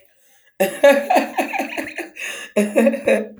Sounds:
Laughter